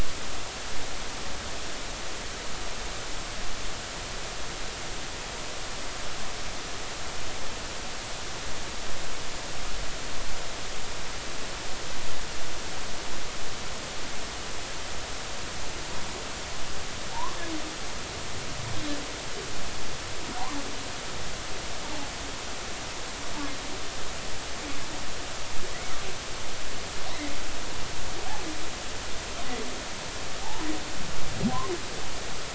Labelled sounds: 17.1	17.4	humpback whale, 0.80 to 1.2 kHz
31.4	31.7	humpback whale, 0.80 to 1.0 kHz

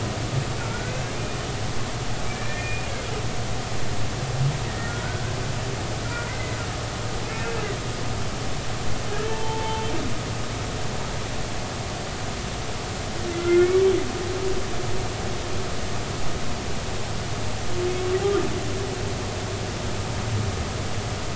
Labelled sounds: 0.6	0.9	humpback whale, 1.3 to 1.6 kHz
2.2	2.9	humpback whale, 1.7 to 2.5 kHz
4.6	5.0	humpback whale, 1.3 to 2.0 kHz
6.3	6.6	humpback whale, 1.9 to 2.1 kHz
9.2	9.9	humpback whale, 0.83 to 0.96 kHz
13.3	13.8	humpback whale, 1.3 to 2.3 kHz

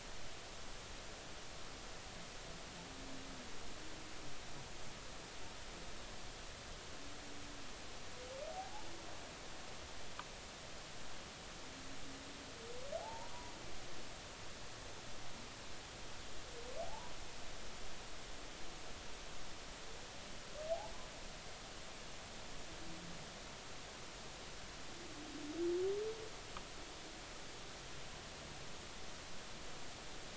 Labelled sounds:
8.5	8.9	humpback whale, 0.80 to 0.96 kHz
13.0	13.3	humpback whale, 0.80 to 1.0 kHz
16.8	17.1	humpback whale, 0.80 to 1.0 kHz

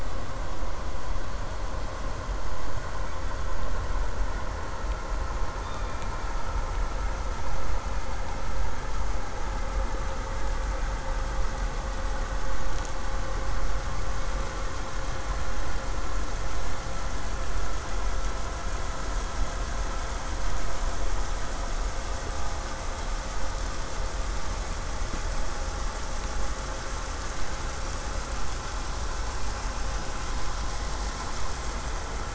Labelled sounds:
3.0	3.7	killer whale, southern resident, K pod, call S16, 2.1 to 4.7 kHz
5.6	6.2	killer whale, southern resident, K pod, call S16, 2.3 to 3.8 kHz
27.3	32.3	vessel noise, 0 to 8.0 kHz

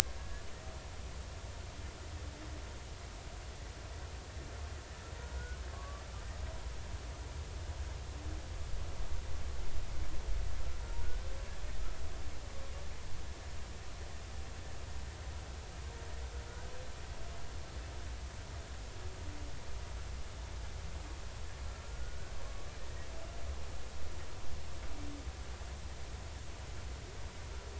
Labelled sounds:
1.0	1.5	humpback whale, 1.6 to 1.8 kHz
5.3	6.0	humpback whale, 0.93 to 1.5 kHz
21.8	22.3	humpback whale, 1.3 to 1.6 kHz

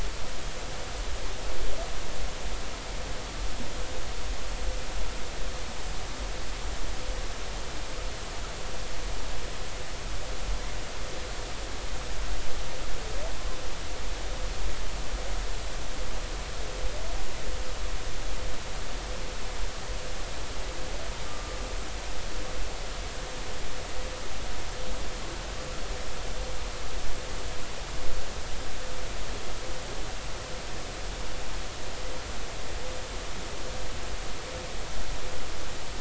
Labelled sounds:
21.3	21.5	humpback whale, 1.15 to 1.25 kHz

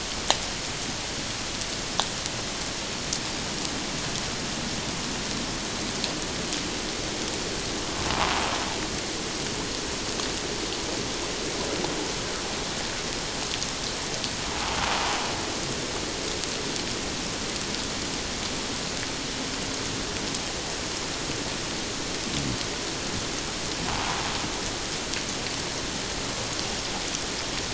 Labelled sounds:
23.9	24.2	invertebrate grinding on or near the hydrophone, 0.78 to 1.0 kHz

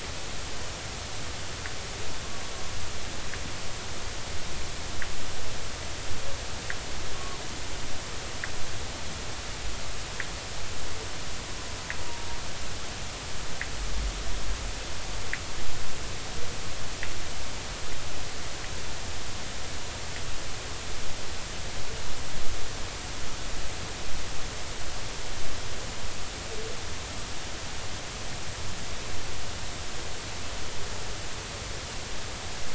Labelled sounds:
7.1	7.4	humpback whale, 0.86 to 1.2 kHz
12.0	12.3	humpback whale, 0.90 to 0.99 kHz

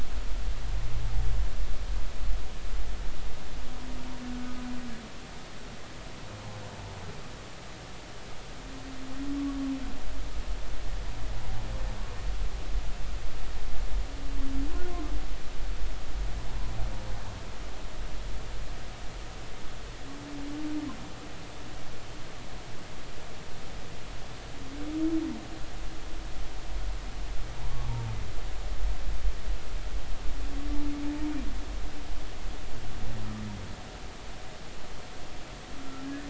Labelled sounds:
4.3	4.5	humpback whale, 1.4 to 1.5 kHz
35.8	36.2	humpback whale, 1.3 to 1.8 kHz

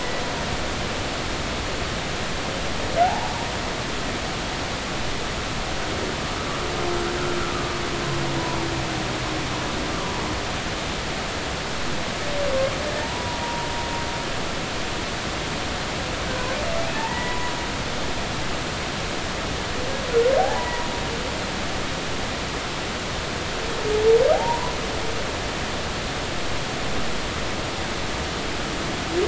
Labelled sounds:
3.0	3.4	humpback whale, 0.80 to 0.99 kHz
13.0	13.7	humpback whale, 0.83 to 1.0 kHz
17.0	17.5	humpback whale, 0.83 to 2.0 kHz
20.4	20.9	humpback whale, 0.80 to 1.0 kHz
24.3	24.7	humpback whale, 0.80 to 1.1 kHz

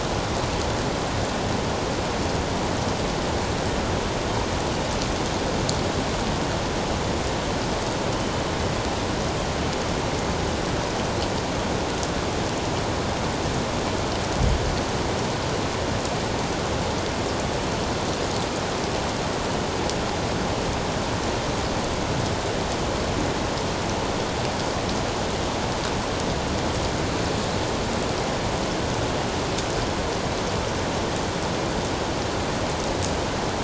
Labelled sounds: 8.1	8.4	killer whale, northern resident, G clan, 2.9 to 3.1 kHz

